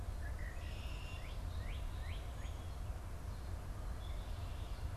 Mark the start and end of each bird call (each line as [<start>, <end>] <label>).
[0.00, 1.40] Red-winged Blackbird (Agelaius phoeniceus)
[1.00, 2.70] Northern Cardinal (Cardinalis cardinalis)